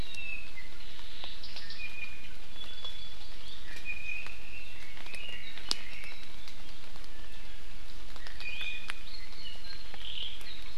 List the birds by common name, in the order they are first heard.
Apapane, Iiwi, Hawaii Amakihi, Red-billed Leiothrix, Omao